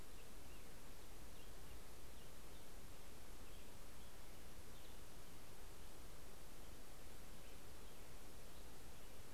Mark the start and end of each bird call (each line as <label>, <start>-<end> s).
Black-headed Grosbeak (Pheucticus melanocephalus), 0.0-9.3 s